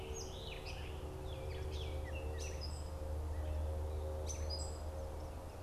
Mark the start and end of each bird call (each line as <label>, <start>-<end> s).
Scarlet Tanager (Piranga olivacea), 0.0-1.2 s
Gray Catbird (Dumetella carolinensis), 0.0-5.0 s